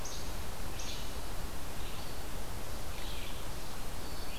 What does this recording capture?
Least Flycatcher, Red-eyed Vireo